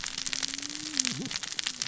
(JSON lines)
{"label": "biophony, cascading saw", "recorder": "SoundTrap 600 or HydroMoth"}